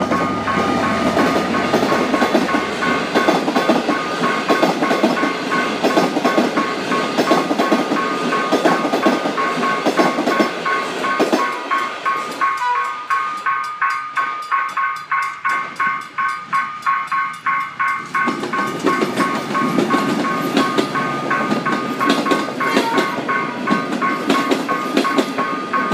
Are there dogs barking?
no